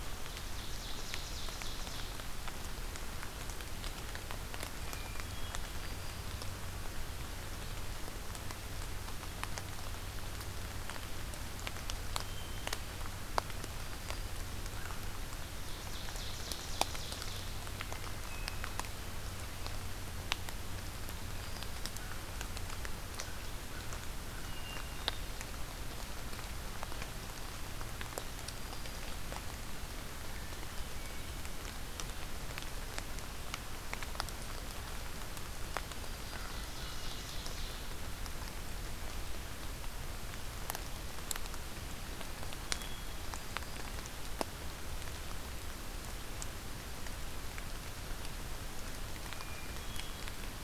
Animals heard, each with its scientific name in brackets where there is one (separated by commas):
Ovenbird (Seiurus aurocapilla), American Crow (Corvus brachyrhynchos), Hermit Thrush (Catharus guttatus)